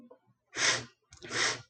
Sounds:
Sniff